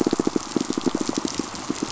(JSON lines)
{"label": "biophony, pulse", "recorder": "SoundTrap 500"}